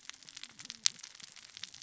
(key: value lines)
label: biophony, cascading saw
recorder: SoundTrap 600 or HydroMoth